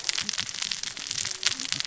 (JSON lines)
{"label": "biophony, cascading saw", "recorder": "SoundTrap 600 or HydroMoth"}